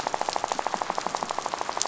{"label": "biophony, rattle", "recorder": "SoundTrap 500"}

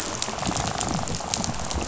{"label": "biophony, rattle", "recorder": "SoundTrap 500"}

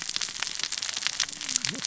{"label": "biophony, cascading saw", "recorder": "SoundTrap 600 or HydroMoth"}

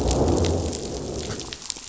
{"label": "biophony, growl", "recorder": "SoundTrap 500"}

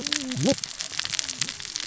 {"label": "biophony, cascading saw", "recorder": "SoundTrap 600 or HydroMoth"}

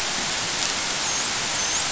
{"label": "biophony, dolphin", "recorder": "SoundTrap 500"}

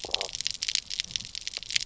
{"label": "biophony, stridulation", "recorder": "SoundTrap 300"}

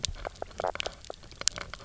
{"label": "biophony, knock croak", "recorder": "SoundTrap 300"}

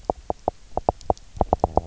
{"label": "biophony, knock", "recorder": "SoundTrap 300"}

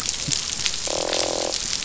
{"label": "biophony, croak", "recorder": "SoundTrap 500"}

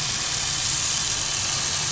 {"label": "anthrophony, boat engine", "recorder": "SoundTrap 500"}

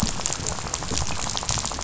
{"label": "biophony, rattle", "recorder": "SoundTrap 500"}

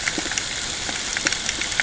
{"label": "ambient", "recorder": "HydroMoth"}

